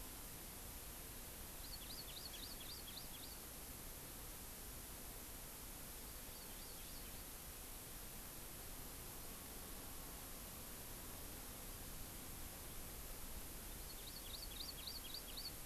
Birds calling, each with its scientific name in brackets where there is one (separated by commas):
Hawaii Amakihi (Chlorodrepanis virens)